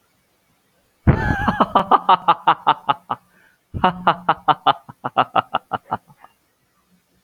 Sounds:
Laughter